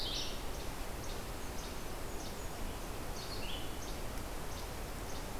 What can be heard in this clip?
Blue-headed Vireo, Least Flycatcher